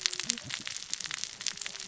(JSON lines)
{"label": "biophony, cascading saw", "recorder": "SoundTrap 600 or HydroMoth"}